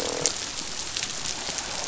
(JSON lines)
{"label": "biophony, croak", "recorder": "SoundTrap 500"}